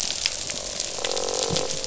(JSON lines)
{"label": "biophony, croak", "recorder": "SoundTrap 500"}